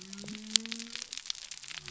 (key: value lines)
label: biophony
recorder: SoundTrap 300